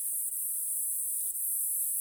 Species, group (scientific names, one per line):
Neoconocephalus triops
Orthoptera